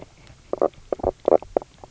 {"label": "biophony, knock croak", "recorder": "SoundTrap 300"}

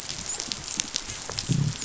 {"label": "biophony, dolphin", "recorder": "SoundTrap 500"}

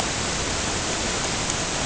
{"label": "ambient", "recorder": "HydroMoth"}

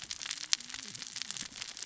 {"label": "biophony, cascading saw", "recorder": "SoundTrap 600 or HydroMoth"}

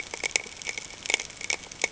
{"label": "ambient", "recorder": "HydroMoth"}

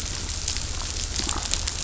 {"label": "anthrophony, boat engine", "recorder": "SoundTrap 500"}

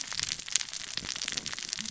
{"label": "biophony, cascading saw", "recorder": "SoundTrap 600 or HydroMoth"}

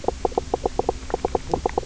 {"label": "biophony, knock croak", "recorder": "SoundTrap 300"}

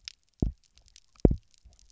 {"label": "biophony, double pulse", "recorder": "SoundTrap 300"}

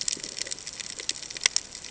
{"label": "ambient", "recorder": "HydroMoth"}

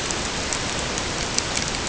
{"label": "ambient", "recorder": "HydroMoth"}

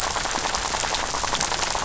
{"label": "biophony, rattle", "recorder": "SoundTrap 500"}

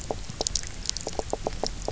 {"label": "biophony, knock croak", "recorder": "SoundTrap 300"}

